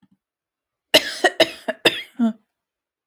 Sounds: Cough